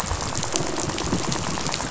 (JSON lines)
{"label": "biophony, rattle", "recorder": "SoundTrap 500"}